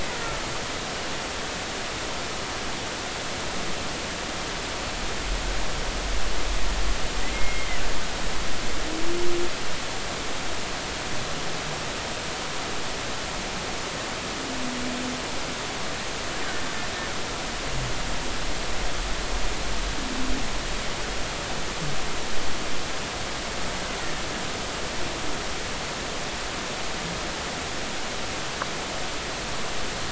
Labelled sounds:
7.3	7.8	killer whale, Bigg's (transient), 1.9 to 3.2 kHz

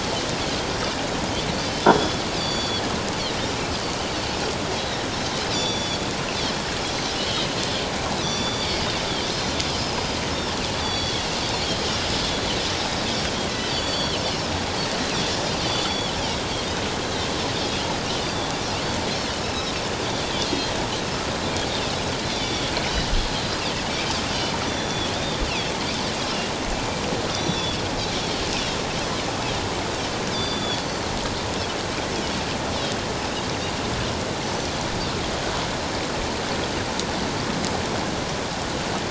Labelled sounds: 1.8	2.8	Pacific white-sided dolphin, 3.1 to 7.0 kHz
3.5	3.8	Pacific white-sided dolphin, 2.5 to 2.7 kHz
5.5	6.0	Pacific white-sided dolphin, 3.3 to 6.0 kHz
6.8	7.5	Pacific white-sided dolphin, 2.9 to 6.2 kHz
8.2	10.0	Pacific white-sided dolphin, 2.1 to 7.0 kHz
10.8	11.3	Pacific white-sided dolphin, 3.2 to 6.0 kHz
13.5	14.2	Pacific white-sided dolphin, 1.9 to 6.9 kHz
15.6	16.1	Pacific white-sided dolphin, 3.3 to 4.7 kHz
17.0	17.3	Pacific white-sided dolphin, 3.6 to 4.1 kHz
18.2	18.5	Pacific white-sided dolphin, 3.3 to 3.7 kHz
19.4	20.8	Pacific white-sided dolphin, 2.5 to 5.4 kHz
22.3	22.7	Pacific white-sided dolphin, 2.2 to 5.9 kHz
24.6	25.1	Pacific white-sided dolphin, 3.3 to 6.0 kHz
27.3	27.8	Pacific white-sided dolphin, 3.3 to 5.9 kHz
30.3	31.1	Pacific white-sided dolphin, 3.3 to 5.3 kHz

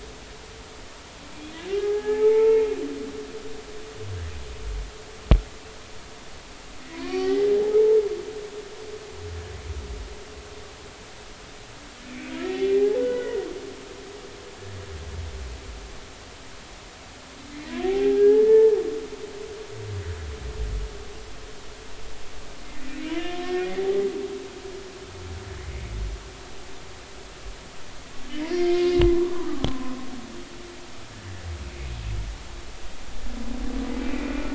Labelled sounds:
1.7	2.7	humpback whale, 0.80 to 2.4 kHz
6.9	7.5	humpback whale, 0.80 to 3.1 kHz
12.0	13.4	humpback whale, 1.4 to 2.7 kHz
17.8	18.8	humpback whale, 0.80 to 1.8 kHz
23.2	23.9	humpback whale, 1.0 to 3.2 kHz
28.2	29.7	humpback whale, 0.93 to 2.9 kHz
34.0	34.5	humpback whale, 2.2 to 2.6 kHz

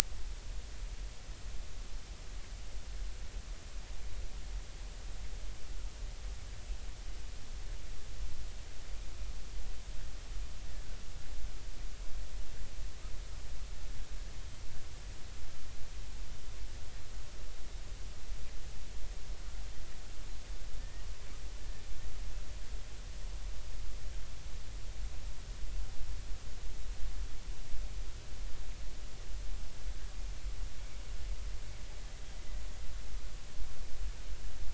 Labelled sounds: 20.8	21.0	killer whale, Bigg's (transient), 1.7 to 1.9 kHz

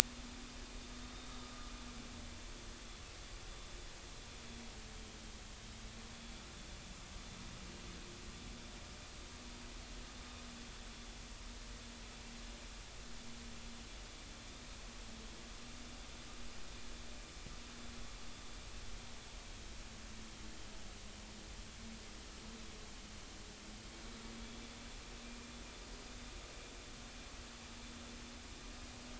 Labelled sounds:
25.2	25.5	vessel noise, 2.3 to 2.5 kHz

